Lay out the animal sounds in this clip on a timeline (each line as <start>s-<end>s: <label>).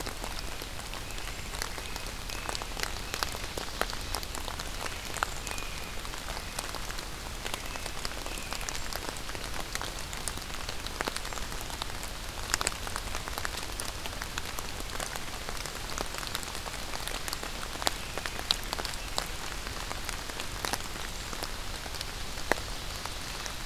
0.0s-5.9s: American Robin (Turdus migratorius)
7.5s-8.8s: American Robin (Turdus migratorius)
21.9s-23.6s: Ovenbird (Seiurus aurocapilla)